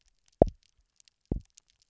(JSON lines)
{"label": "biophony, double pulse", "recorder": "SoundTrap 300"}